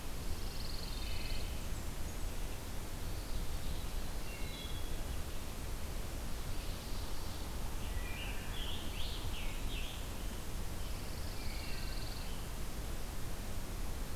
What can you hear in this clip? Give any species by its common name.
Pine Warbler, Wood Thrush, Blackburnian Warbler, Ovenbird, Scarlet Tanager